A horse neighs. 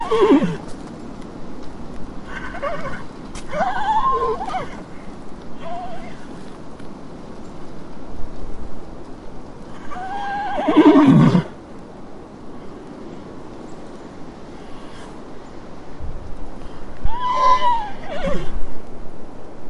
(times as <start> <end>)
0.0 0.7, 2.3 4.9, 5.5 6.7, 9.7 11.5, 17.0 18.8